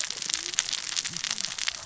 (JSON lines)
{"label": "biophony, cascading saw", "recorder": "SoundTrap 600 or HydroMoth"}